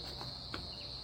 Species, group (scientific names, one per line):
Cyclochila australasiae
Cicadidae